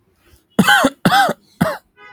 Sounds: Cough